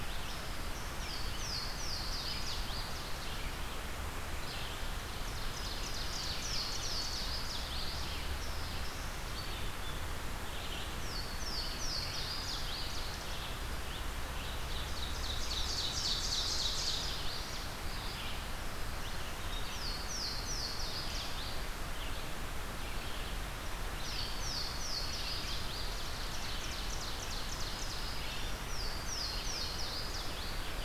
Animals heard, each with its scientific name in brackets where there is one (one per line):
Ovenbird (Seiurus aurocapilla)
Black-throated Green Warbler (Setophaga virens)
Louisiana Waterthrush (Parkesia motacilla)
Red-eyed Vireo (Vireo olivaceus)